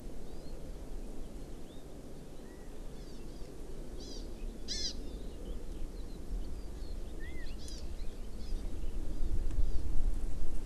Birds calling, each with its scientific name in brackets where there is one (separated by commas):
Eurasian Skylark (Alauda arvensis), Hawaii Amakihi (Chlorodrepanis virens)